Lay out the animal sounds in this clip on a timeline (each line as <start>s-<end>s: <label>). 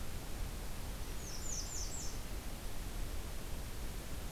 0.9s-2.2s: American Redstart (Setophaga ruticilla)